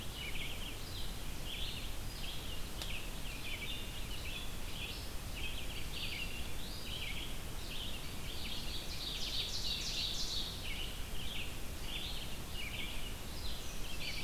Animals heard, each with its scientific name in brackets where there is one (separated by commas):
Red-eyed Vireo (Vireo olivaceus), Ovenbird (Seiurus aurocapilla)